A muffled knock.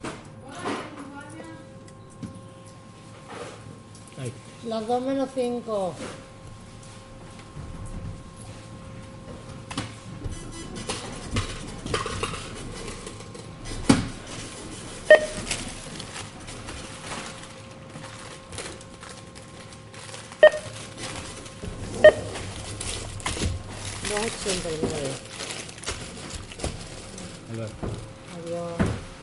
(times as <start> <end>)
0.0 1.2, 13.6 14.4, 27.7 29.2